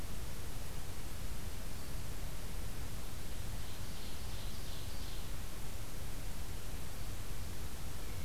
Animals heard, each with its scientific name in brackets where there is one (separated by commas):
Ovenbird (Seiurus aurocapilla)